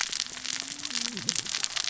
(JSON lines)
{"label": "biophony, cascading saw", "recorder": "SoundTrap 600 or HydroMoth"}